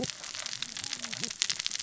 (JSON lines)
{"label": "biophony, cascading saw", "recorder": "SoundTrap 600 or HydroMoth"}